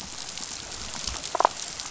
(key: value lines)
label: biophony
recorder: SoundTrap 500

label: biophony, damselfish
recorder: SoundTrap 500